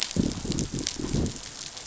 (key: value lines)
label: biophony, growl
recorder: SoundTrap 500